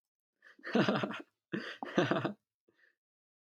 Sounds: Laughter